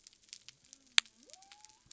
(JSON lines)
{"label": "biophony", "recorder": "SoundTrap 300"}